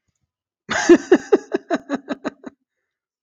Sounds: Laughter